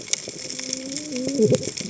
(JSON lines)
{"label": "biophony, cascading saw", "recorder": "HydroMoth"}